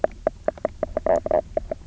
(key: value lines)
label: biophony, knock croak
recorder: SoundTrap 300